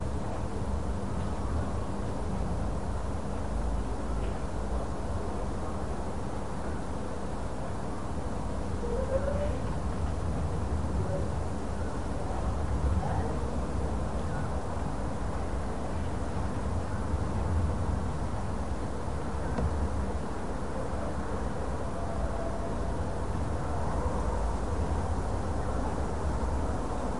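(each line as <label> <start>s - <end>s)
Distant city hum and faint human voices in a suburban area at night. 0.0s - 27.2s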